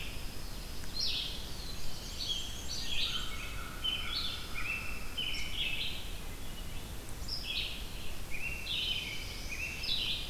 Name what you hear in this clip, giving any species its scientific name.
Setophaga pinus, Vireo olivaceus, Setophaga caerulescens, Mniotilta varia, Turdus migratorius, Corvus brachyrhynchos